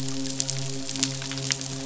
{"label": "biophony, midshipman", "recorder": "SoundTrap 500"}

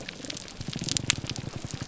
{"label": "biophony, grouper groan", "recorder": "SoundTrap 300"}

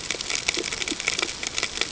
{"label": "ambient", "recorder": "HydroMoth"}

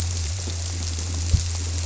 {"label": "biophony", "recorder": "SoundTrap 300"}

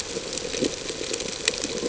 {"label": "ambient", "recorder": "HydroMoth"}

